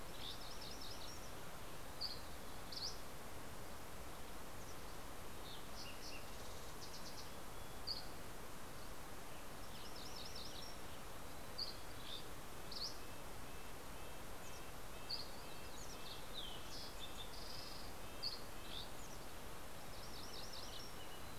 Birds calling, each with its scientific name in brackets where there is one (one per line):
Fox Sparrow (Passerella iliaca)
Mountain Chickadee (Poecile gambeli)
Dusky Flycatcher (Empidonax oberholseri)
MacGillivray's Warbler (Geothlypis tolmiei)
Red-breasted Nuthatch (Sitta canadensis)